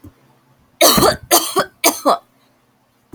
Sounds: Cough